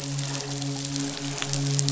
{"label": "biophony, midshipman", "recorder": "SoundTrap 500"}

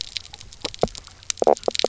{"label": "biophony, knock croak", "recorder": "SoundTrap 300"}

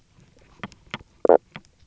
{"label": "biophony, knock croak", "recorder": "SoundTrap 300"}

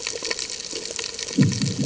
{"label": "anthrophony, bomb", "recorder": "HydroMoth"}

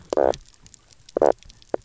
{"label": "biophony, knock croak", "recorder": "SoundTrap 300"}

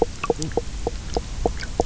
{"label": "biophony, knock croak", "recorder": "SoundTrap 300"}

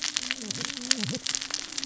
{"label": "biophony, cascading saw", "recorder": "SoundTrap 600 or HydroMoth"}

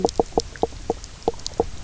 {"label": "biophony, knock croak", "recorder": "SoundTrap 300"}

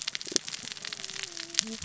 {"label": "biophony, cascading saw", "recorder": "SoundTrap 600 or HydroMoth"}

